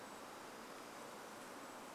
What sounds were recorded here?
Golden-crowned Kinglet call